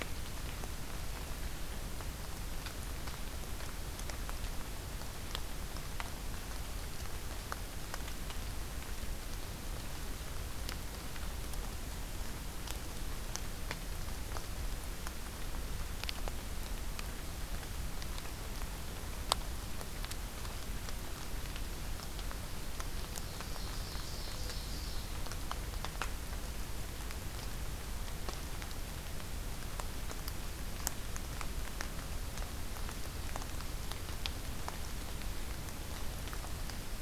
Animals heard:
Ovenbird (Seiurus aurocapilla), Mourning Dove (Zenaida macroura)

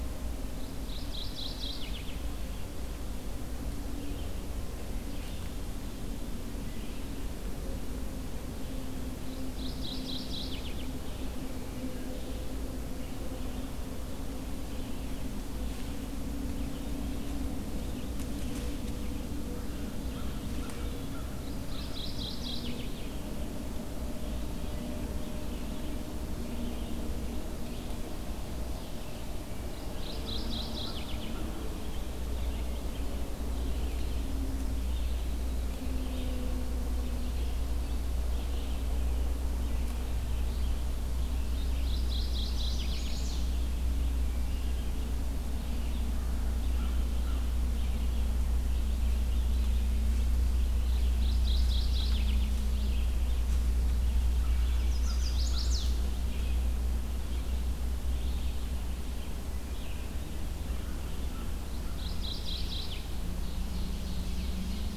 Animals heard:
Ovenbird (Seiurus aurocapilla), Chestnut-sided Warbler (Setophaga pensylvanica), Mourning Warbler (Geothlypis philadelphia), American Crow (Corvus brachyrhynchos), Red-eyed Vireo (Vireo olivaceus)

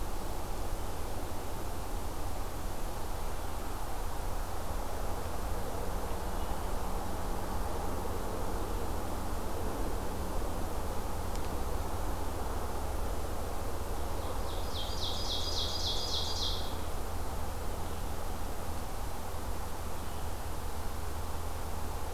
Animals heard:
Ovenbird (Seiurus aurocapilla)

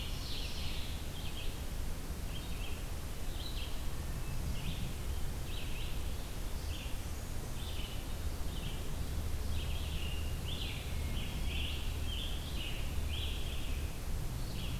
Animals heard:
Scarlet Tanager (Piranga olivacea), Ovenbird (Seiurus aurocapilla), Blackburnian Warbler (Setophaga fusca), Red-eyed Vireo (Vireo olivaceus)

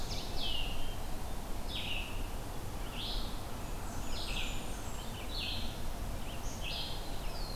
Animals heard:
Black-capped Chickadee (Poecile atricapillus), Blackburnian Warbler (Setophaga fusca), Red-eyed Vireo (Vireo olivaceus)

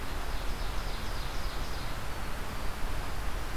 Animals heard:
Black-throated Blue Warbler (Setophaga caerulescens), Ovenbird (Seiurus aurocapilla)

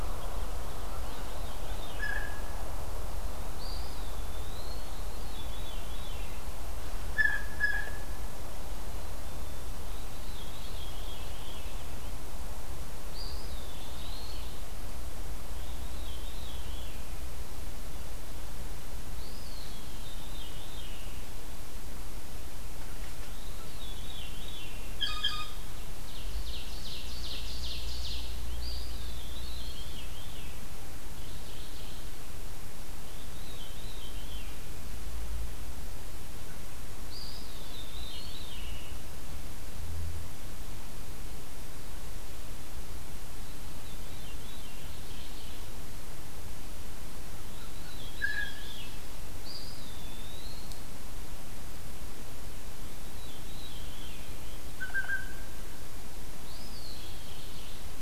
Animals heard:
Black-capped Chickadee (Poecile atricapillus), Veery (Catharus fuscescens), Ovenbird (Seiurus aurocapilla), Mourning Warbler (Geothlypis philadelphia), Blue Jay (Cyanocitta cristata), Eastern Wood-Pewee (Contopus virens)

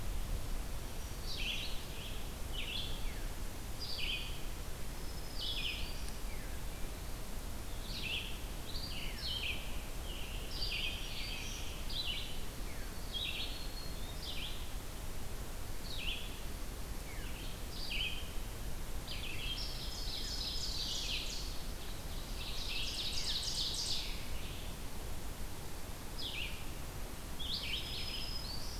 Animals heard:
Black-throated Green Warbler (Setophaga virens), Veery (Catharus fuscescens), Red-eyed Vireo (Vireo olivaceus), Scarlet Tanager (Piranga olivacea), Ovenbird (Seiurus aurocapilla)

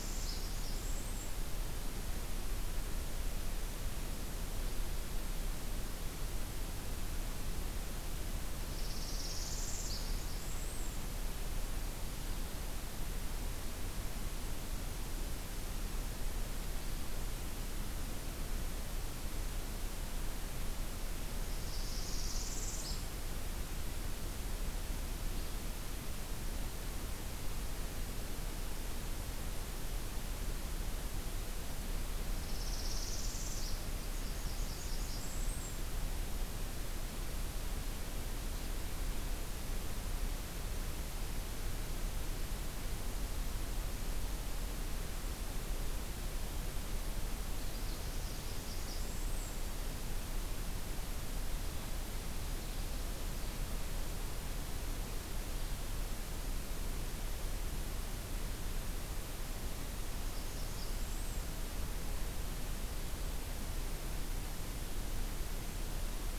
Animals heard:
Northern Parula (Setophaga americana), Blackburnian Warbler (Setophaga fusca)

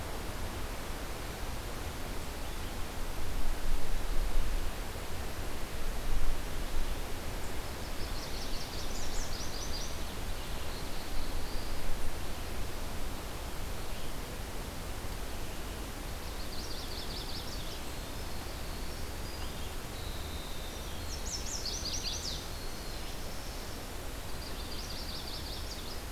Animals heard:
Chestnut-sided Warbler (Setophaga pensylvanica), Winter Wren (Troglodytes hiemalis), Black-throated Blue Warbler (Setophaga caerulescens)

